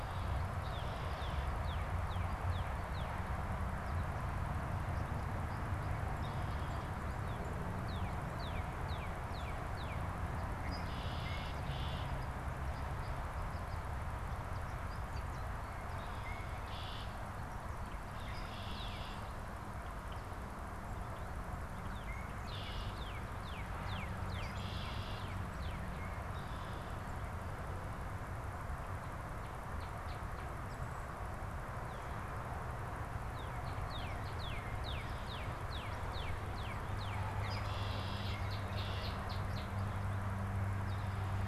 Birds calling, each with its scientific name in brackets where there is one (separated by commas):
American Goldfinch (Spinus tristis), Northern Cardinal (Cardinalis cardinalis), Red-winged Blackbird (Agelaius phoeniceus)